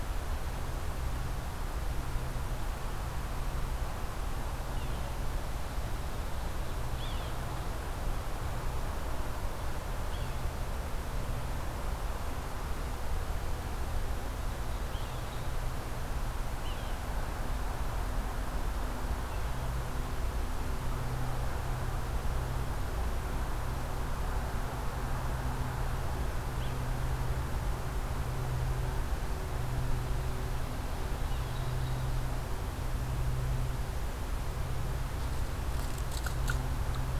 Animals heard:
Yellow-bellied Sapsucker (Sphyrapicus varius)

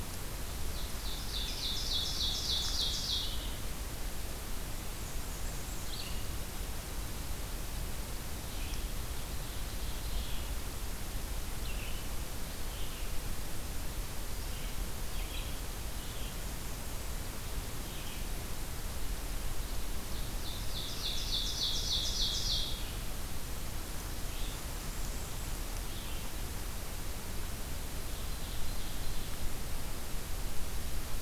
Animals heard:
Red-eyed Vireo (Vireo olivaceus)
Ovenbird (Seiurus aurocapilla)
Blackburnian Warbler (Setophaga fusca)

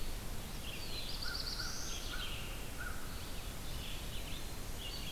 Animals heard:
American Crow (Corvus brachyrhynchos)
Red-eyed Vireo (Vireo olivaceus)
Eastern Wood-Pewee (Contopus virens)
Black-throated Blue Warbler (Setophaga caerulescens)

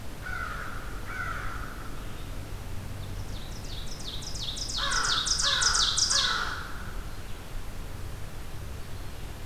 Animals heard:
Red-eyed Vireo (Vireo olivaceus)
American Crow (Corvus brachyrhynchos)
Ovenbird (Seiurus aurocapilla)

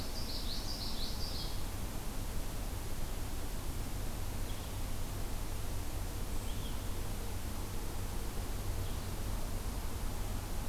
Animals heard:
Blue-headed Vireo (Vireo solitarius)
Common Yellowthroat (Geothlypis trichas)

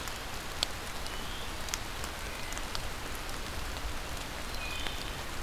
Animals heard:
Wood Thrush (Hylocichla mustelina)

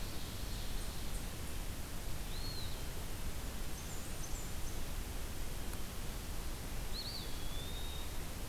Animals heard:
Blackburnian Warbler (Setophaga fusca)
Eastern Wood-Pewee (Contopus virens)

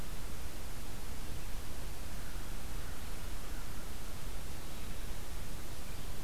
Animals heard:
American Crow (Corvus brachyrhynchos)

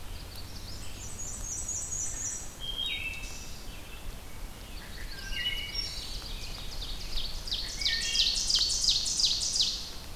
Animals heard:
Magnolia Warbler (Setophaga magnolia)
Wood Thrush (Hylocichla mustelina)
Black-and-white Warbler (Mniotilta varia)
Ovenbird (Seiurus aurocapilla)

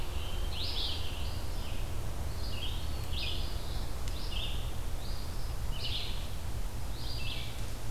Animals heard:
Scarlet Tanager (Piranga olivacea)
Red-eyed Vireo (Vireo olivaceus)
Eastern Phoebe (Sayornis phoebe)

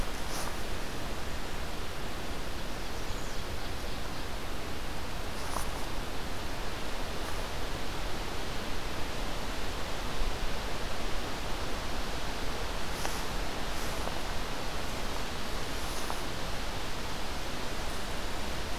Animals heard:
American Redstart (Setophaga ruticilla)
Ovenbird (Seiurus aurocapilla)

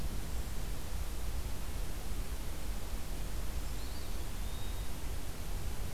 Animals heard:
Eastern Wood-Pewee (Contopus virens)

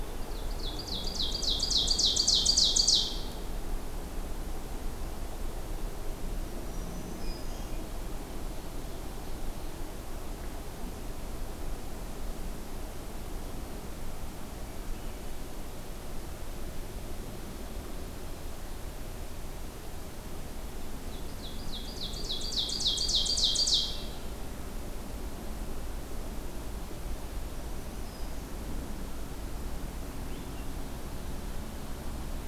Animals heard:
Swainson's Thrush (Catharus ustulatus)
Blue-headed Vireo (Vireo solitarius)
Black-throated Green Warbler (Setophaga virens)
Ovenbird (Seiurus aurocapilla)

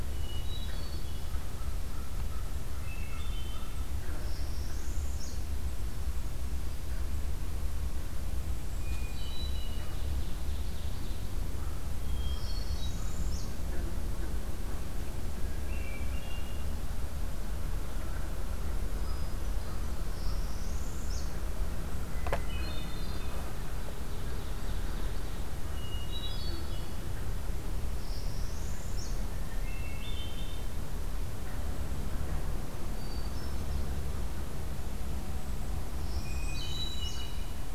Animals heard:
Hermit Thrush (Catharus guttatus)
American Crow (Corvus brachyrhynchos)
Ovenbird (Seiurus aurocapilla)
Northern Parula (Setophaga americana)

